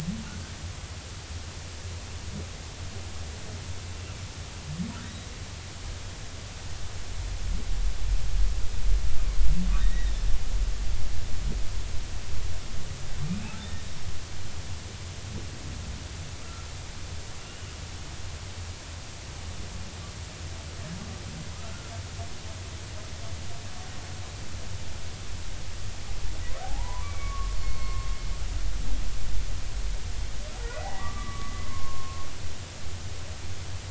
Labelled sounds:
5.0	5.3	humpback whale, 3.7 to 3.9 kHz
9.8	10.1	humpback whale, 1.7 to 2.0 kHz
17.4	17.7	humpback whale, 2.7 to 3.0 kHz
21.5	21.9	humpback whale, 1.2 to 1.5 kHz
26.6	28.1	humpback whale, 0.80 to 4.4 kHz
30.6	32.2	humpback whale, 1.0 to 2.0 kHz

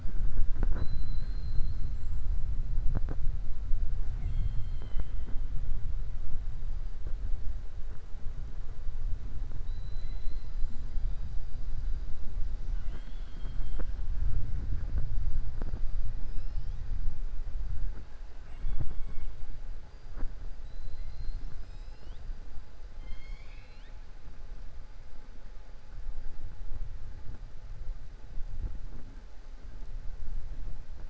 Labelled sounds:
9.6	10.8	killer whale, 2.0 to 4.9 kHz
20.6	22.2	killer whale, 2.7 to 5.8 kHz
22.9	24.0	killer whale, 1.7 to 6.9 kHz

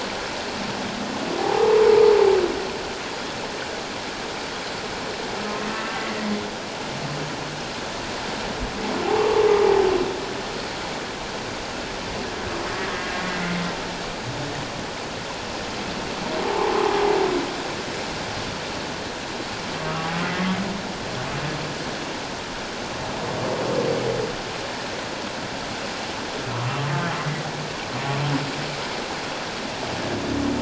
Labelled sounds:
1.4	1.8	humpback whale, 0.78 to 0.97 kHz
12.8	13.2	humpback whale, 1.6 to 1.7 kHz
16.4	16.7	humpback whale, 0.78 to 1.2 kHz
27.2	27.4	humpback whale, 1.9 to 2.1 kHz

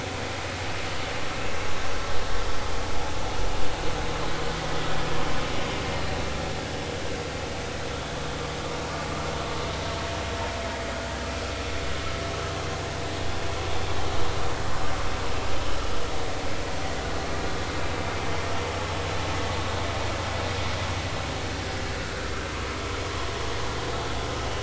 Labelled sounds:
22.0	22.3	vessel noise, 1.3 to 1.7 kHz

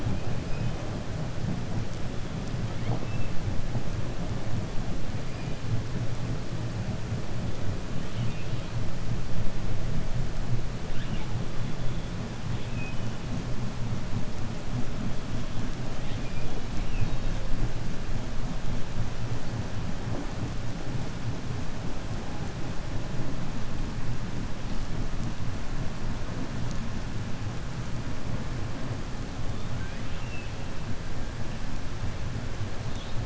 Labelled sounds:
8.0	8.7	killer whale, 2.2 to 4.5 kHz
16.7	17.4	killer whale, 2.2 to 4.4 kHz

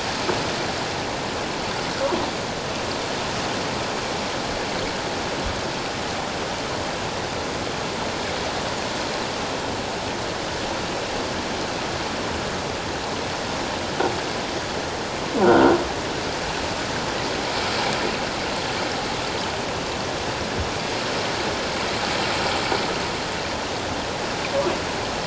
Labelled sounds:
15.4	15.7	croaking sound likely from a nearby submerged object, 1.3 to 1.6 kHz

